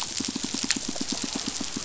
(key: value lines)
label: biophony, pulse
recorder: SoundTrap 500